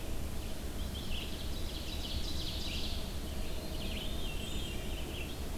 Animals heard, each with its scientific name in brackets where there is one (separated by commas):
Ovenbird (Seiurus aurocapilla), Red-eyed Vireo (Vireo olivaceus), Veery (Catharus fuscescens)